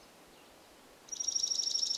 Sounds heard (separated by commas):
Dark-eyed Junco song